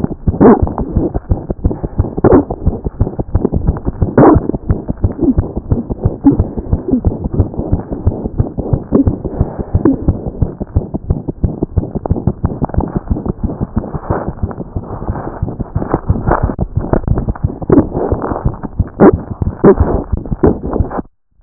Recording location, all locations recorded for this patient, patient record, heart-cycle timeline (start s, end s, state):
mitral valve (MV)
aortic valve (AV)+pulmonary valve (PV)+mitral valve (MV)
#Age: Infant
#Sex: Female
#Height: 57.0 cm
#Weight: 3.9 kg
#Pregnancy status: False
#Murmur: Present
#Murmur locations: aortic valve (AV)+mitral valve (MV)+pulmonary valve (PV)
#Most audible location: pulmonary valve (PV)
#Systolic murmur timing: Holosystolic
#Systolic murmur shape: Plateau
#Systolic murmur grading: I/VI
#Systolic murmur pitch: Low
#Systolic murmur quality: Blowing
#Diastolic murmur timing: Early-diastolic
#Diastolic murmur shape: Decrescendo
#Diastolic murmur grading: I/IV
#Diastolic murmur pitch: High
#Diastolic murmur quality: Harsh
#Outcome: Abnormal
#Campaign: 2014 screening campaign
0.00	10.00	unannotated
10.00	10.06	diastole
10.06	10.17	S1
10.17	10.26	systole
10.26	10.32	S2
10.32	10.40	diastole
10.40	10.51	S1
10.51	10.61	systole
10.61	10.66	S2
10.66	10.74	diastole
10.74	10.85	S1
10.85	10.94	systole
10.94	10.99	S2
10.99	11.08	diastole
11.08	11.19	S1
11.19	11.28	systole
11.28	11.35	S2
11.35	11.43	diastole
11.43	11.53	S1
11.53	11.61	systole
11.61	11.68	S2
11.68	11.75	diastole
11.75	11.87	S1
11.87	11.95	systole
11.95	12.01	S2
12.01	12.10	diastole
12.10	21.42	unannotated